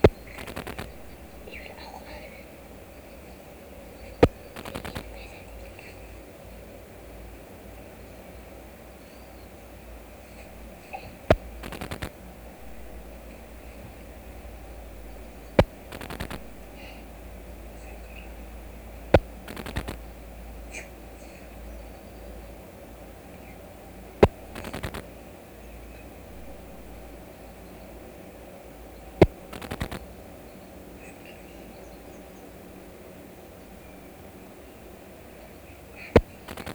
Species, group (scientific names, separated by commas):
Poecilimon antalyaensis, Orthoptera